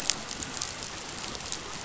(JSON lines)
{"label": "biophony", "recorder": "SoundTrap 500"}